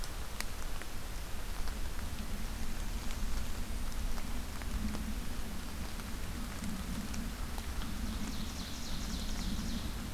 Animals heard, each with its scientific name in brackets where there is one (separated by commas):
Ovenbird (Seiurus aurocapilla)